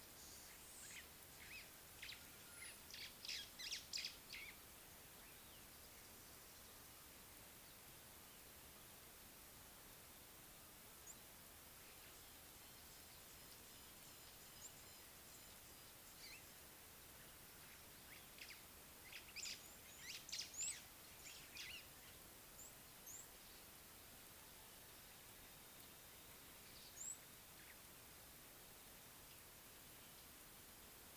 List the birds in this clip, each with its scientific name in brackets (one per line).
White-browed Sparrow-Weaver (Plocepasser mahali)
Red-cheeked Cordonbleu (Uraeginthus bengalus)